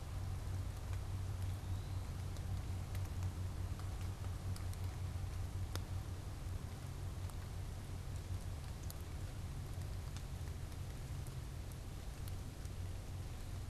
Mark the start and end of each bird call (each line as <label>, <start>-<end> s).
Eastern Wood-Pewee (Contopus virens), 1.3-2.2 s